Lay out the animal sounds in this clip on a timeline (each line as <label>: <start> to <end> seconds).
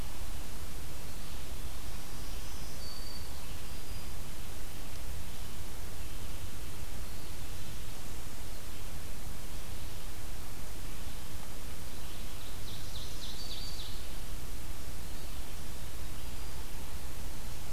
Black-throated Green Warbler (Setophaga virens): 1.8 to 3.5 seconds
Ovenbird (Seiurus aurocapilla): 11.6 to 14.5 seconds
Black-throated Green Warbler (Setophaga virens): 12.6 to 14.2 seconds